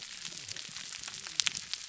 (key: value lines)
label: biophony, whup
recorder: SoundTrap 300